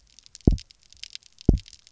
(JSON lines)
{"label": "biophony, double pulse", "recorder": "SoundTrap 300"}